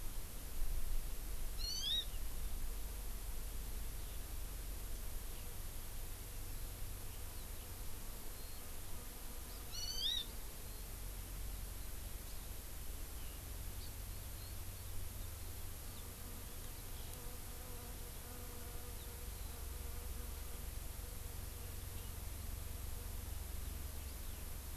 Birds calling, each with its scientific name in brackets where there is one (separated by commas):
Hawaii Amakihi (Chlorodrepanis virens), Eurasian Skylark (Alauda arvensis)